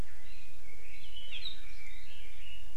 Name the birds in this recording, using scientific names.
Leiothrix lutea